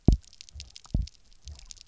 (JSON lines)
{"label": "biophony, double pulse", "recorder": "SoundTrap 300"}